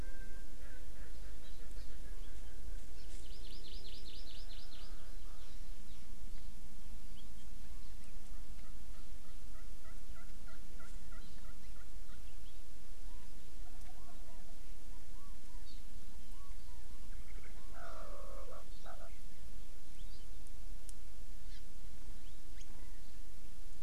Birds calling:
Erckel's Francolin (Pternistis erckelii), Chinese Hwamei (Garrulax canorus), Hawaii Amakihi (Chlorodrepanis virens)

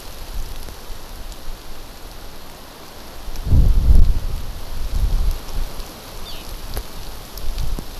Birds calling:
Eurasian Skylark (Alauda arvensis)

